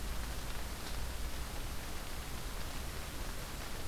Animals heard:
forest ambience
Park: Marsh-Billings-Rockefeller National Historical Park